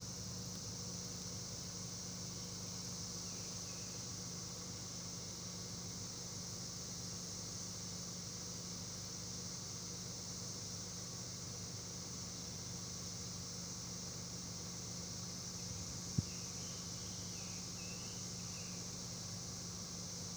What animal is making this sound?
Magicicada tredecassini, a cicada